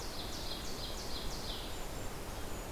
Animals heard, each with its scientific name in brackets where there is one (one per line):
Golden-crowned Kinglet (Regulus satrapa)
Ovenbird (Seiurus aurocapilla)